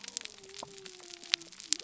{"label": "biophony", "recorder": "SoundTrap 300"}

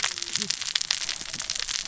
{"label": "biophony, cascading saw", "recorder": "SoundTrap 600 or HydroMoth"}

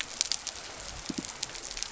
{"label": "biophony", "recorder": "SoundTrap 300"}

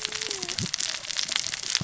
{"label": "biophony, cascading saw", "recorder": "SoundTrap 600 or HydroMoth"}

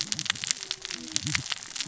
{"label": "biophony, cascading saw", "recorder": "SoundTrap 600 or HydroMoth"}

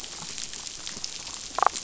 {"label": "biophony, damselfish", "recorder": "SoundTrap 500"}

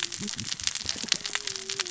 {"label": "biophony, cascading saw", "recorder": "SoundTrap 600 or HydroMoth"}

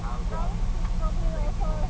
{"label": "ambient", "recorder": "HydroMoth"}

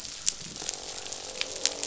{"label": "biophony, croak", "recorder": "SoundTrap 500"}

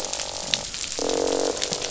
{"label": "biophony, croak", "recorder": "SoundTrap 500"}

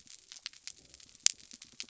{"label": "biophony", "recorder": "SoundTrap 300"}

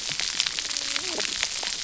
{"label": "biophony, cascading saw", "recorder": "SoundTrap 300"}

